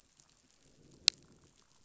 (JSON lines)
{"label": "biophony, growl", "recorder": "SoundTrap 500"}